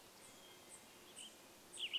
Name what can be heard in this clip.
Hermit Thrush song, Western Tanager song, unidentified bird chip note